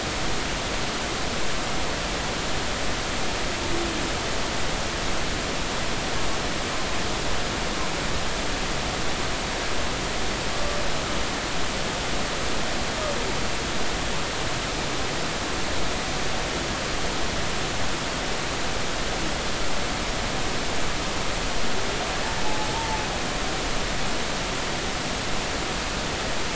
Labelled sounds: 22.4	23.0	humpback whale, 0.80 to 0.96 kHz

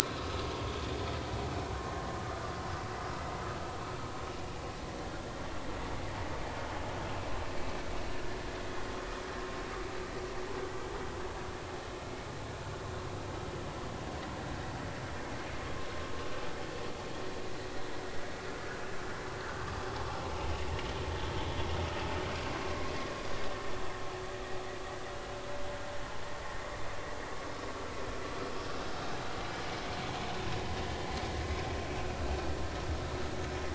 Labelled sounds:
0.2	0.5	vessel noise, 1.2 to 1.3 kHz

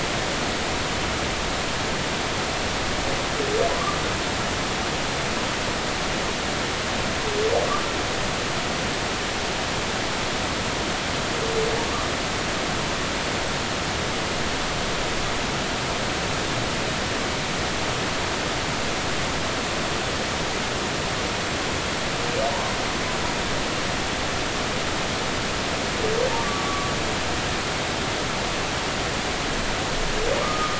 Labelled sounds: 22.5	22.8	humpback whale, 0.86 to 1.1 kHz
26.4	26.9	humpback whale, 1.1 to 1.2 kHz
30.4	30.7	humpback whale, 1.1 to 1.3 kHz

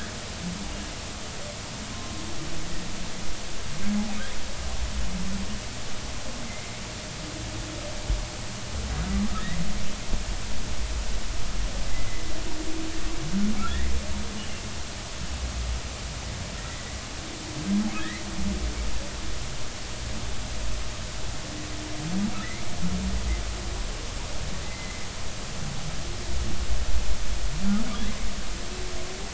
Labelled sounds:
6.5	6.7	humpback whale, 2.0 to 2.2 kHz
11.9	12.3	humpback whale, 2.0 to 2.1 kHz
13.7	13.9	humpback whale, 1.6 to 2.1 kHz
16.6	16.8	humpback whale, 1.8 to 2.0 kHz
18.0	18.2	humpback whale, 1.6 to 2.2 kHz
22.4	22.7	humpback whale, 1.7 to 2.4 kHz
24.6	25.0	humpback whale, 1.9 to 2.1 kHz

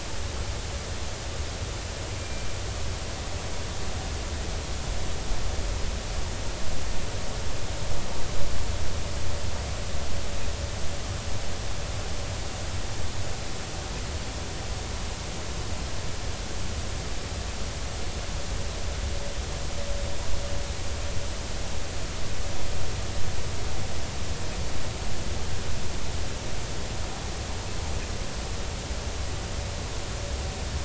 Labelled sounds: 2.2	2.5	killer whale, Bigg's (transient), 2.3 to 2.4 kHz

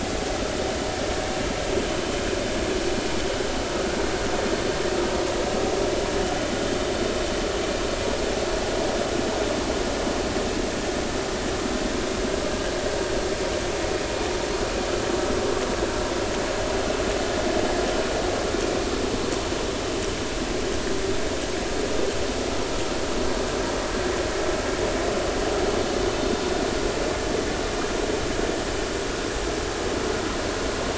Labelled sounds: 12.5	12.7	vessel noise, 1.5 to 1.7 kHz

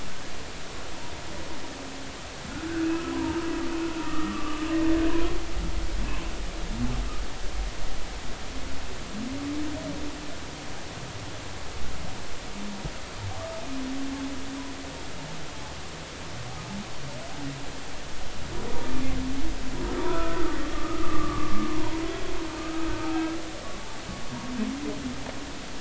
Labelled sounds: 2.6	3.4	humpback whale, 0.86 to 1.8 kHz
4.0	4.7	humpback whale, 1.1 to 1.9 kHz
20.1	21.7	humpback whale, 1.0 to 1.5 kHz
23.1	23.4	humpback whale, 1.5 to 1.7 kHz

